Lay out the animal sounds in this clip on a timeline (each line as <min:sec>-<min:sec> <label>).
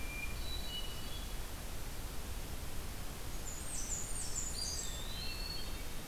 0:00.0-0:01.5 Hermit Thrush (Catharus guttatus)
0:03.1-0:05.0 Blackburnian Warbler (Setophaga fusca)
0:04.5-0:05.8 Eastern Wood-Pewee (Contopus virens)
0:04.7-0:06.1 Hermit Thrush (Catharus guttatus)